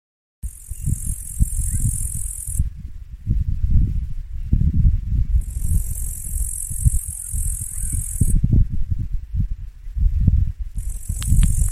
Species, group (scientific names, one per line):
Tettigonia cantans
Orthoptera